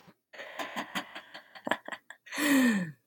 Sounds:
Laughter